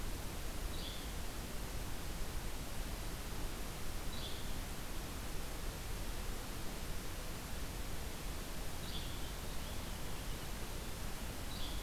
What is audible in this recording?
Yellow-bellied Flycatcher, Purple Finch